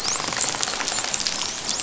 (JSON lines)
{"label": "biophony, dolphin", "recorder": "SoundTrap 500"}